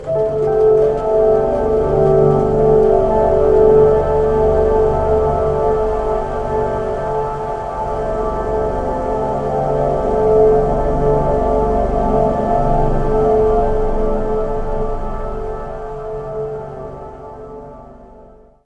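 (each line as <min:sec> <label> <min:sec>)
0:00.0 Beautiful ambient piano music slowly fading out. 0:18.6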